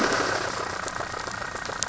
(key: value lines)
label: anthrophony, boat engine
recorder: SoundTrap 500